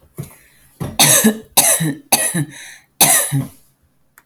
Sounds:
Cough